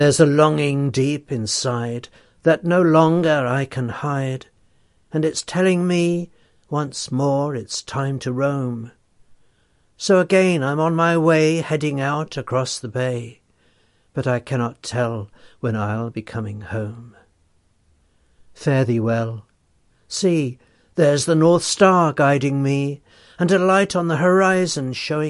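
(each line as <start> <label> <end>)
0.0 A man is reciting a poem clearly. 9.1
9.9 A man is reciting a poem clearly. 17.3
18.5 A man is reciting a poem clearly. 25.3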